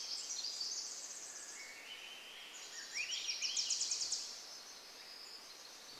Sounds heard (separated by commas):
Swainson's Thrush song, Pacific Wren song, Wilson's Warbler song